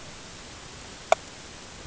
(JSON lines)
{"label": "ambient", "recorder": "HydroMoth"}